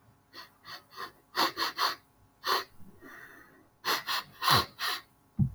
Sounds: Sniff